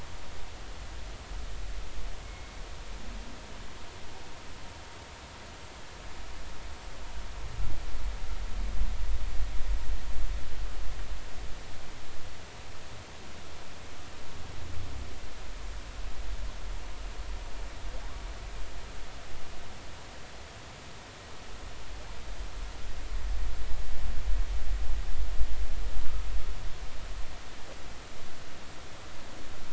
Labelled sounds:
2.2	2.5	humpback whale, 2.1 to 2.2 kHz

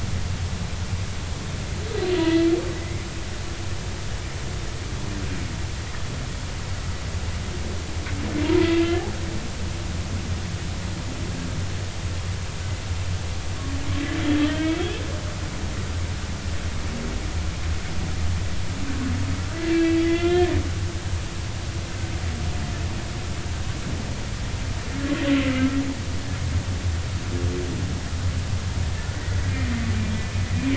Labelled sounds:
2.1	2.5	humpback whale, 1.9 to 2.0 kHz
8.6	9.1	humpback whale, 1.7 to 2.8 kHz
14.4	14.8	humpback whale, 1.8 to 3.3 kHz
19.7	20.5	humpback whale, 1.3 to 3.6 kHz
25.5	25.8	humpback whale, 1.2 to 1.4 kHz
30.2	30.5	humpback whale, 2.4 to 2.5 kHz

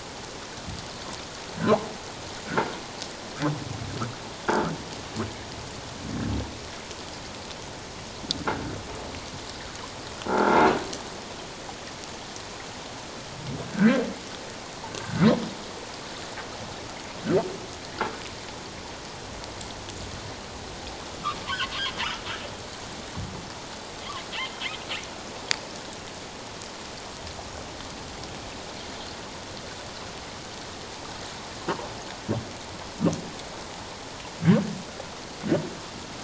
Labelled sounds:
10.3	10.6	croaking sound likely from a nearby submerged object, 1.3 to 1.7 kHz
13.7	14.0	humpback whale, 1.4 to 1.7 kHz
14.9	15.3	humpback whale, 1.2 to 1.6 kHz

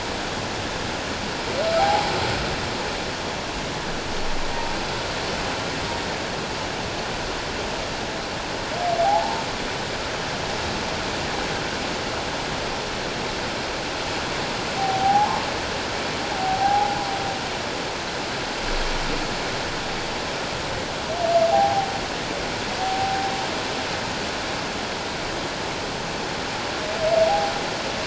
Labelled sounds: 1.8	2.1	humpback whale, 0.78 to 1.0 kHz
9.0	9.4	humpback whale, 0.78 to 1.0 kHz
14.8	15.5	humpback whale, 0.78 to 1.1 kHz
16.4	17.0	humpback whale, 0.78 to 0.97 kHz
21.5	21.9	humpback whale, 0.78 to 0.91 kHz
22.8	23.3	humpback whale, 0.78 to 0.84 kHz

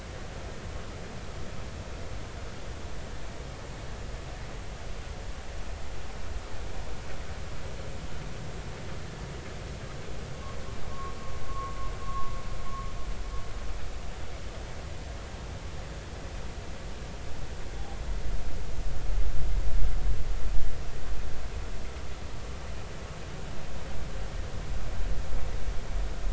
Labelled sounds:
10.9	11.1	vessel noise, 0.96 to 1.2 kHz
11.5	12.3	vessel noise, 0.96 to 1.2 kHz

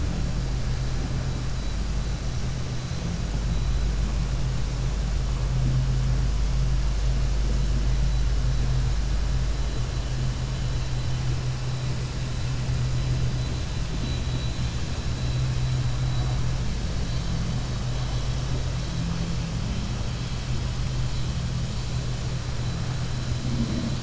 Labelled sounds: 13.9	14.8	vessel noise, 2.4 to 4.2 kHz

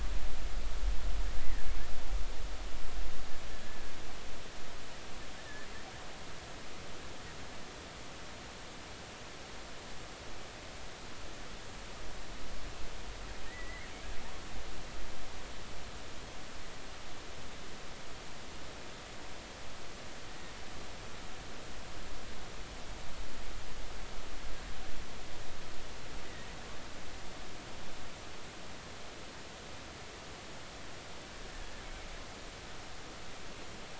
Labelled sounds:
3.6	3.9	killer whale, offshore, 1.6 to 1.8 kHz
5.4	5.7	killer whale, offshore, 1.6 to 1.9 kHz
13.5	13.9	killer whale, offshore, 1.8 to 2.2 kHz

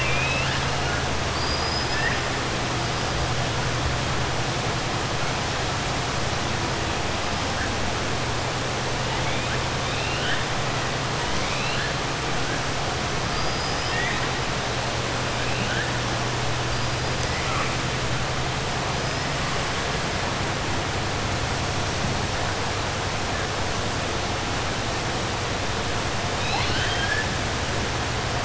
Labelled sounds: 1.2	2.0	killer whale, 4.5 to 5.1 kHz
11.3	11.9	killer whale, 1.6 to 4.3 kHz
13.2	14.2	killer whale, 1.3 to 5.8 kHz
26.3	27.3	killer whale, 0.83 to 5.3 kHz

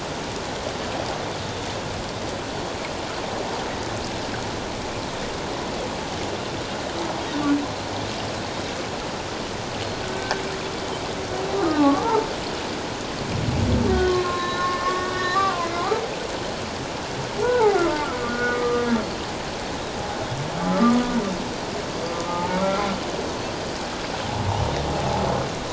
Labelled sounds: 10.0	10.4	humpback whale, 1.4 to 1.8 kHz
11.6	12.3	humpback whale, 0.78 to 1.4 kHz
14.1	16.0	humpback whale, 0.94 to 4.2 kHz
17.4	18.8	humpback whale, 0.78 to 1.6 kHz
20.8	21.1	humpback whale, 1.1 to 1.2 kHz
21.9	22.2	Pacific white-sided dolphin, 4.6 to 4.8 kHz
22.3	22.6	humpback whale, 0.81 to 0.97 kHz

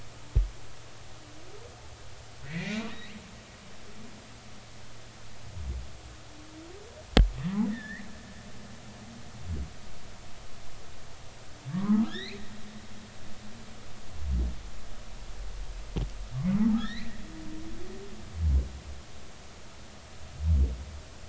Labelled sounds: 2.4	2.9	humpback whale, 1.7 to 2.6 kHz
7.7	8.1	humpback whale, 1.6 to 2.1 kHz
11.7	12.4	humpback whale, 0.93 to 4.4 kHz
16.8	17.2	humpback whale, 1.6 to 4.3 kHz

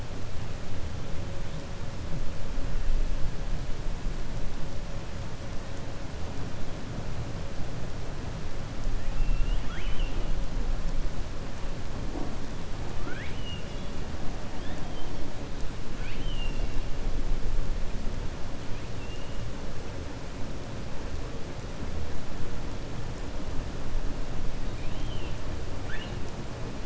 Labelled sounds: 9.0	10.3	killer whale, 1.3 to 3.4 kHz
24.7	25.4	killer whale, 2.4 to 3.9 kHz

